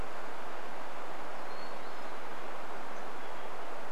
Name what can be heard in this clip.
Hermit Thrush song